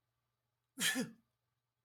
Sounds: Sneeze